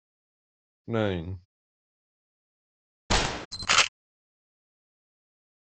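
At 0.88 seconds, a voice says "Nine." Then at 3.1 seconds, gunfire can be heard. Afterwards, at 3.51 seconds, you can hear the sound of a camera.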